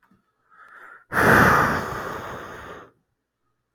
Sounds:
Sigh